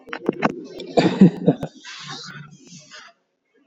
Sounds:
Laughter